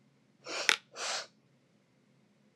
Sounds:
Sniff